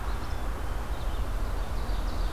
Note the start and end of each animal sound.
0.0s-2.3s: Red-eyed Vireo (Vireo olivaceus)
0.0s-1.0s: Black-capped Chickadee (Poecile atricapillus)
1.6s-2.3s: Ovenbird (Seiurus aurocapilla)

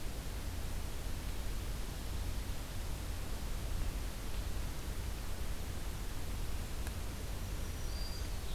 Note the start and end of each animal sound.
7.3s-8.4s: Black-throated Green Warbler (Setophaga virens)

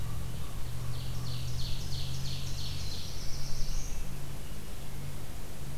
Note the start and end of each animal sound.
0.0s-1.4s: Common Raven (Corvus corax)
0.8s-3.0s: Ovenbird (Seiurus aurocapilla)
2.3s-4.3s: Black-throated Blue Warbler (Setophaga caerulescens)

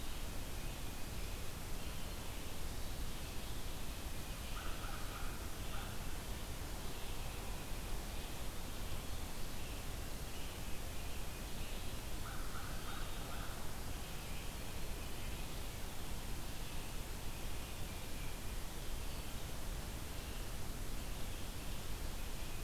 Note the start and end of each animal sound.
0.0s-22.6s: Ovenbird (Seiurus aurocapilla)
4.4s-6.1s: American Crow (Corvus brachyrhynchos)
12.1s-13.6s: American Crow (Corvus brachyrhynchos)

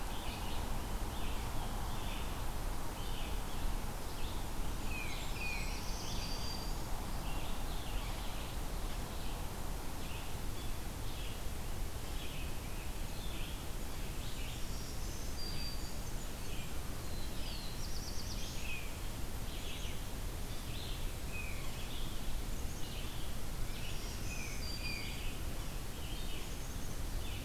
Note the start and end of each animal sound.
0.0s-5.3s: Red-eyed Vireo (Vireo olivaceus)
4.6s-5.8s: Blackburnian Warbler (Setophaga fusca)
4.8s-7.0s: Black-throated Blue Warbler (Setophaga caerulescens)
4.8s-5.8s: Tufted Titmouse (Baeolophus bicolor)
5.4s-7.0s: Black-throated Green Warbler (Setophaga virens)
6.0s-27.4s: Red-eyed Vireo (Vireo olivaceus)
14.5s-16.2s: Black-throated Green Warbler (Setophaga virens)
15.6s-16.8s: Blackburnian Warbler (Setophaga fusca)
16.9s-18.7s: Black-throated Blue Warbler (Setophaga caerulescens)
21.2s-21.7s: Tufted Titmouse (Baeolophus bicolor)
22.4s-23.0s: Black-capped Chickadee (Poecile atricapillus)
23.6s-25.2s: Blackburnian Warbler (Setophaga fusca)
23.8s-25.6s: Black-throated Green Warbler (Setophaga virens)
26.3s-27.0s: Black-capped Chickadee (Poecile atricapillus)

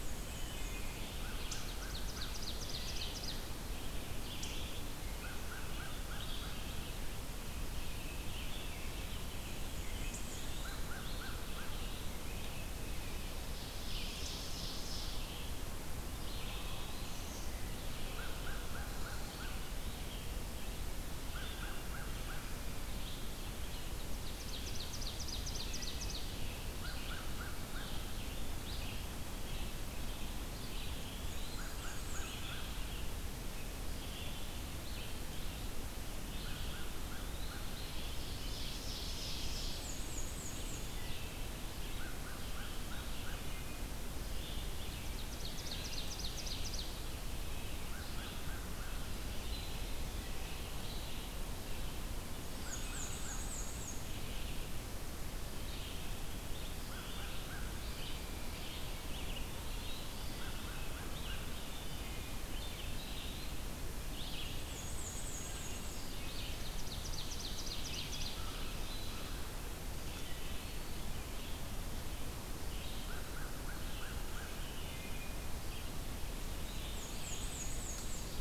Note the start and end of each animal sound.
0.0s-0.9s: Black-and-white Warbler (Mniotilta varia)
0.0s-35.6s: Red-eyed Vireo (Vireo olivaceus)
0.3s-1.1s: Wood Thrush (Hylocichla mustelina)
1.1s-2.4s: American Crow (Corvus brachyrhynchos)
1.2s-3.7s: Ovenbird (Seiurus aurocapilla)
5.2s-6.8s: American Crow (Corvus brachyrhynchos)
7.6s-10.3s: American Robin (Turdus migratorius)
9.3s-10.9s: Black-and-white Warbler (Mniotilta varia)
10.5s-11.8s: American Crow (Corvus brachyrhynchos)
13.2s-15.5s: Ovenbird (Seiurus aurocapilla)
16.1s-17.3s: Eastern Wood-Pewee (Contopus virens)
18.0s-19.6s: American Crow (Corvus brachyrhynchos)
21.0s-22.6s: American Crow (Corvus brachyrhynchos)
23.8s-26.6s: Ovenbird (Seiurus aurocapilla)
25.4s-26.2s: Wood Thrush (Hylocichla mustelina)
26.7s-28.3s: American Crow (Corvus brachyrhynchos)
30.5s-31.6s: Eastern Wood-Pewee (Contopus virens)
30.9s-32.5s: Black-and-white Warbler (Mniotilta varia)
31.5s-32.7s: American Crow (Corvus brachyrhynchos)
36.1s-78.4s: Red-eyed Vireo (Vireo olivaceus)
36.2s-37.7s: Eastern Wood-Pewee (Contopus virens)
36.3s-37.7s: American Crow (Corvus brachyrhynchos)
37.9s-39.8s: Ovenbird (Seiurus aurocapilla)
39.3s-40.9s: Black-and-white Warbler (Mniotilta varia)
40.6s-41.5s: Wood Thrush (Hylocichla mustelina)
41.8s-43.6s: American Crow (Corvus brachyrhynchos)
43.2s-44.1s: Wood Thrush (Hylocichla mustelina)
45.0s-47.0s: American Crow (Corvus brachyrhynchos)
47.8s-49.2s: American Crow (Corvus brachyrhynchos)
52.4s-54.1s: Black-and-white Warbler (Mniotilta varia)
52.4s-53.7s: American Crow (Corvus brachyrhynchos)
56.7s-58.0s: American Crow (Corvus brachyrhynchos)
59.0s-60.3s: Eastern Wood-Pewee (Contopus virens)
60.3s-61.7s: American Crow (Corvus brachyrhynchos)
61.7s-62.5s: Wood Thrush (Hylocichla mustelina)
64.5s-66.1s: Black-and-white Warbler (Mniotilta varia)
66.4s-68.5s: American Crow (Corvus brachyrhynchos)
70.0s-71.0s: Eastern Wood-Pewee (Contopus virens)
72.9s-75.1s: American Crow (Corvus brachyrhynchos)
74.7s-75.4s: Wood Thrush (Hylocichla mustelina)
76.7s-78.4s: Black-and-white Warbler (Mniotilta varia)

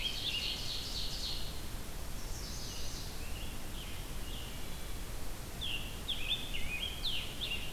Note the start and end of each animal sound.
0.0s-0.7s: Scarlet Tanager (Piranga olivacea)
0.0s-1.7s: Ovenbird (Seiurus aurocapilla)
2.0s-3.2s: Chestnut-sided Warbler (Setophaga pensylvanica)
2.9s-4.8s: Scarlet Tanager (Piranga olivacea)
5.5s-7.7s: Scarlet Tanager (Piranga olivacea)

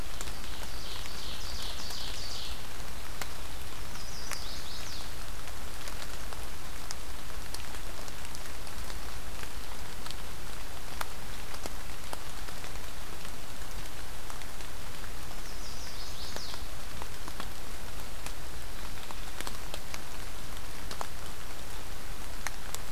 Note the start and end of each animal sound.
0.2s-2.6s: Ovenbird (Seiurus aurocapilla)
3.5s-5.1s: Chestnut-sided Warbler (Setophaga pensylvanica)
15.3s-16.7s: Chestnut-sided Warbler (Setophaga pensylvanica)

